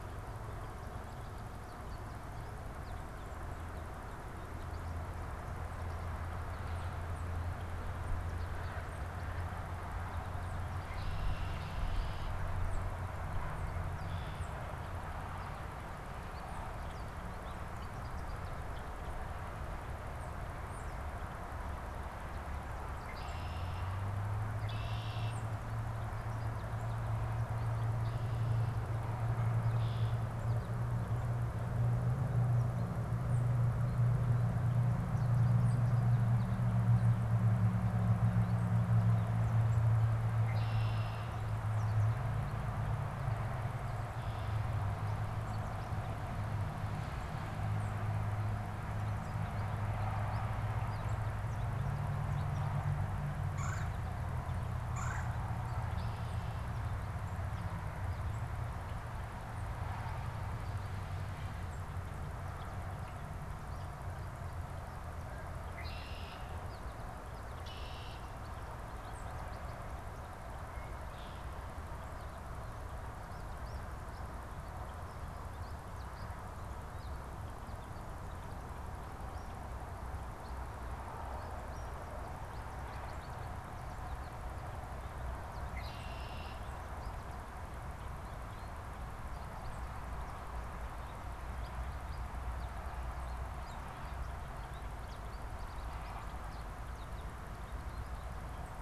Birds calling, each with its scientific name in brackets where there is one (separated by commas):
American Goldfinch (Spinus tristis), Red-bellied Woodpecker (Melanerpes carolinus), Red-winged Blackbird (Agelaius phoeniceus), Tufted Titmouse (Baeolophus bicolor)